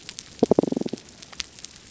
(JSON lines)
{"label": "biophony", "recorder": "SoundTrap 300"}